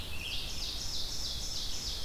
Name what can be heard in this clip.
Scarlet Tanager, Ovenbird, Red-eyed Vireo